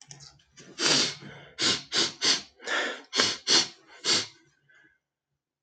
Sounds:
Sniff